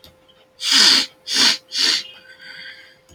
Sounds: Sniff